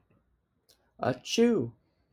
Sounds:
Sneeze